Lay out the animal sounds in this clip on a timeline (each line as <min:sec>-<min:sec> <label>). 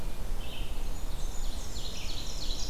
0:00.0-0:02.7 Red-eyed Vireo (Vireo olivaceus)
0:00.7-0:02.0 Blackburnian Warbler (Setophaga fusca)
0:00.9-0:02.7 Ovenbird (Seiurus aurocapilla)